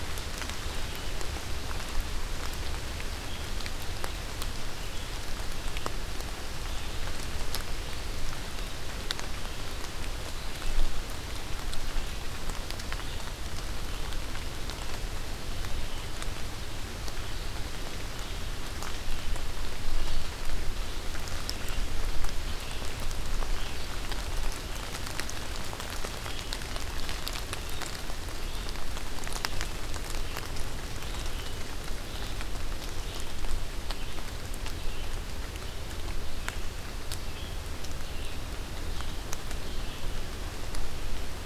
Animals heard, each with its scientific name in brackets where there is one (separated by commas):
Red-eyed Vireo (Vireo olivaceus)